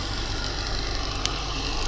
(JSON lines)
{"label": "anthrophony, boat engine", "recorder": "SoundTrap 300"}